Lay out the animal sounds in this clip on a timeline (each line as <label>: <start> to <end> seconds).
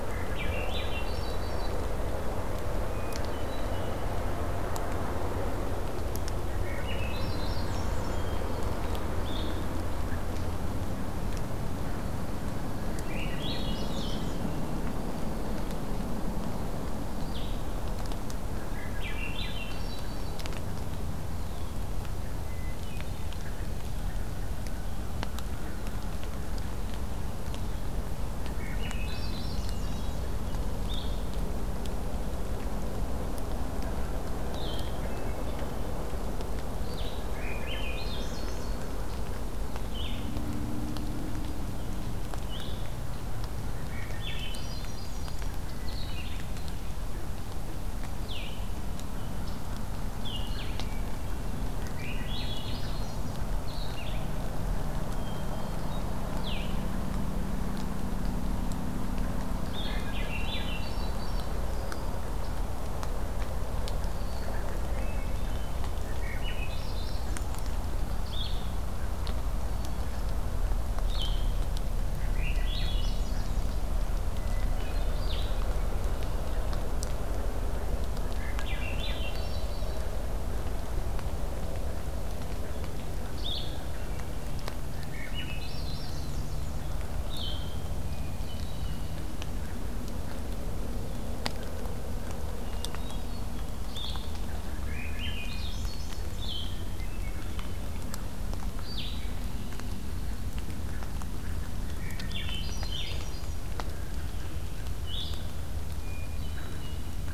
Swainson's Thrush (Catharus ustulatus): 0.0 to 1.9 seconds
Hermit Thrush (Catharus guttatus): 2.8 to 4.1 seconds
Swainson's Thrush (Catharus ustulatus): 6.4 to 8.3 seconds
Hermit Thrush (Catharus guttatus): 8.0 to 9.0 seconds
Blue-headed Vireo (Vireo solitarius): 9.1 to 9.6 seconds
Swainson's Thrush (Catharus ustulatus): 12.8 to 14.4 seconds
Blue-headed Vireo (Vireo solitarius): 13.9 to 17.6 seconds
Swainson's Thrush (Catharus ustulatus): 18.5 to 20.4 seconds
Hermit Thrush (Catharus guttatus): 22.4 to 23.5 seconds
Swainson's Thrush (Catharus ustulatus): 28.3 to 30.1 seconds
Hermit Thrush (Catharus guttatus): 29.5 to 30.4 seconds
Blue-headed Vireo (Vireo solitarius): 30.8 to 31.2 seconds
Blue-headed Vireo (Vireo solitarius): 34.4 to 60.1 seconds
Hermit Thrush (Catharus guttatus): 34.9 to 36.0 seconds
Swainson's Thrush (Catharus ustulatus): 37.2 to 38.8 seconds
Swainson's Thrush (Catharus ustulatus): 43.7 to 45.5 seconds
Hermit Thrush (Catharus guttatus): 45.5 to 46.7 seconds
Hermit Thrush (Catharus guttatus): 50.7 to 51.7 seconds
Swainson's Thrush (Catharus ustulatus): 51.7 to 53.4 seconds
Hermit Thrush (Catharus guttatus): 55.1 to 56.3 seconds
Swainson's Thrush (Catharus ustulatus): 59.8 to 61.6 seconds
Hermit Thrush (Catharus guttatus): 64.9 to 66.1 seconds
Swainson's Thrush (Catharus ustulatus): 66.0 to 67.8 seconds
Blue-headed Vireo (Vireo solitarius): 68.2 to 75.7 seconds
Hermit Thrush (Catharus guttatus): 69.6 to 70.3 seconds
Swainson's Thrush (Catharus ustulatus): 72.1 to 73.9 seconds
Hermit Thrush (Catharus guttatus): 74.3 to 75.4 seconds
Swainson's Thrush (Catharus ustulatus): 78.1 to 80.0 seconds
Blue-headed Vireo (Vireo solitarius): 83.3 to 87.7 seconds
Hermit Thrush (Catharus guttatus): 83.6 to 84.6 seconds
Swainson's Thrush (Catharus ustulatus): 84.9 to 86.7 seconds
Hermit Thrush (Catharus guttatus): 88.0 to 89.3 seconds
Hermit Thrush (Catharus guttatus): 92.6 to 93.6 seconds
Blue-headed Vireo (Vireo solitarius): 93.7 to 99.3 seconds
Swainson's Thrush (Catharus ustulatus): 94.6 to 96.3 seconds
Hermit Thrush (Catharus guttatus): 96.7 to 98.0 seconds
Swainson's Thrush (Catharus ustulatus): 101.8 to 103.6 seconds
Blue-headed Vireo (Vireo solitarius): 102.8 to 107.3 seconds
Hermit Thrush (Catharus guttatus): 105.9 to 107.0 seconds